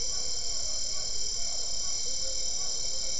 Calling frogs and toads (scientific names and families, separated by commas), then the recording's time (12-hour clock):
Physalaemus cuvieri (Leptodactylidae)
7:45pm